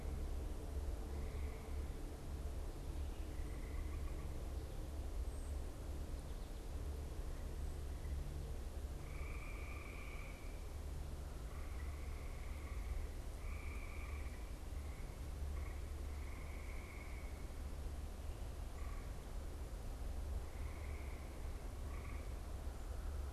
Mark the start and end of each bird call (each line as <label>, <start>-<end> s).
Cedar Waxwing (Bombycilla cedrorum), 5.1-5.8 s